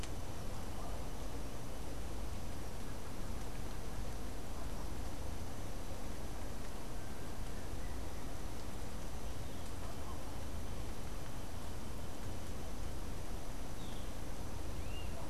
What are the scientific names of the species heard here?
Pitangus sulphuratus